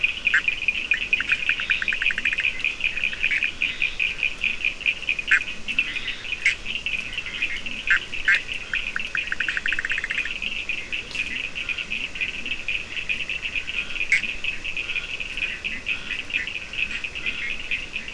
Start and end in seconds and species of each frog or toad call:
0.0	10.4	Bischoff's tree frog
0.0	18.1	Cochran's lime tree frog
1.2	18.1	Leptodactylus latrans
6.9	18.1	Scinax perereca
13.8	14.4	Bischoff's tree frog
4:00am

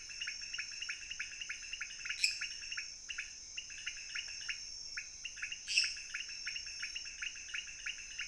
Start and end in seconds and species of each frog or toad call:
0.0	8.2	pointedbelly frog
2.2	2.5	lesser tree frog
5.6	6.0	lesser tree frog
2:00am

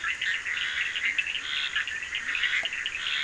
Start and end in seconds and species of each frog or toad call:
0.0	3.2	Bischoff's tree frog
0.0	3.2	Cochran's lime tree frog
0.1	3.2	Scinax perereca
1.0	2.6	Leptodactylus latrans
12:45am

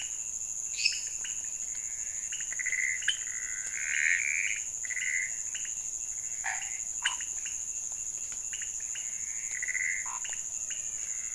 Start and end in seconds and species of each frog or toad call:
0.0	11.3	pointedbelly frog
0.0	11.3	Pithecopus azureus
0.7	1.1	lesser tree frog
6.3	7.2	Scinax fuscovarius
10.0	10.3	Scinax fuscovarius
10.4	11.2	menwig frog
12:15am

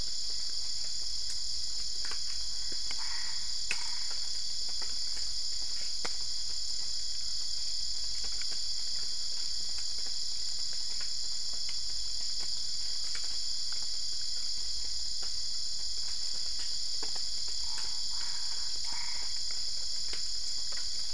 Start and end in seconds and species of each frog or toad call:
2.8	4.4	Boana albopunctata
17.4	19.5	Boana albopunctata
2:30am

